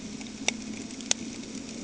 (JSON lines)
{"label": "anthrophony, boat engine", "recorder": "HydroMoth"}